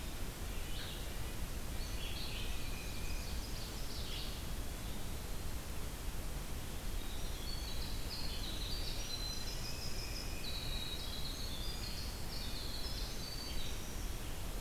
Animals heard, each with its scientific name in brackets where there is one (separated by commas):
Red-breasted Nuthatch (Sitta canadensis), Eastern Wood-Pewee (Contopus virens), Red-eyed Vireo (Vireo olivaceus), Black-and-white Warbler (Mniotilta varia), Tufted Titmouse (Baeolophus bicolor), Winter Wren (Troglodytes hiemalis)